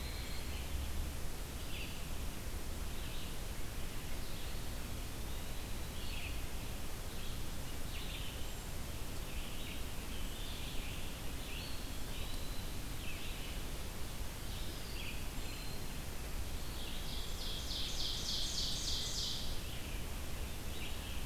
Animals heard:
Ovenbird (Seiurus aurocapilla), Red-eyed Vireo (Vireo olivaceus), Scarlet Tanager (Piranga olivacea), Eastern Wood-Pewee (Contopus virens)

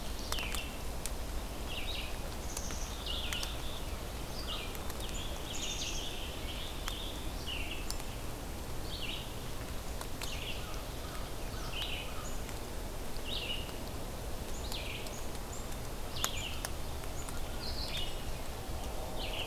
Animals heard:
Black-capped Chickadee (Poecile atricapillus), American Crow (Corvus brachyrhynchos), Rose-breasted Grosbeak (Pheucticus ludovicianus), Red-eyed Vireo (Vireo olivaceus)

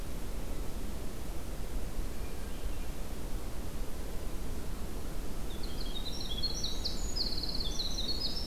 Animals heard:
Hermit Thrush (Catharus guttatus), Winter Wren (Troglodytes hiemalis)

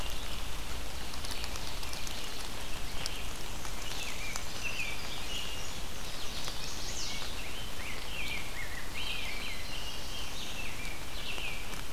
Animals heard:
Rose-breasted Grosbeak (Pheucticus ludovicianus), Chestnut-sided Warbler (Setophaga pensylvanica), Black-throated Blue Warbler (Setophaga caerulescens), Ovenbird (Seiurus aurocapilla), Red-eyed Vireo (Vireo olivaceus), Indigo Bunting (Passerina cyanea), American Robin (Turdus migratorius)

